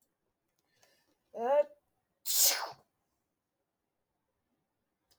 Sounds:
Sneeze